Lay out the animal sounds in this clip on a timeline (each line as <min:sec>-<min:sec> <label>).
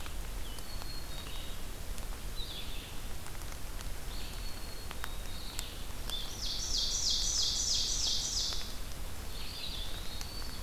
0:00.0-0:10.6 Red-eyed Vireo (Vireo olivaceus)
0:00.6-0:01.6 Black-capped Chickadee (Poecile atricapillus)
0:04.2-0:05.7 Black-capped Chickadee (Poecile atricapillus)
0:06.0-0:08.7 Ovenbird (Seiurus aurocapilla)
0:09.2-0:10.6 Eastern Wood-Pewee (Contopus virens)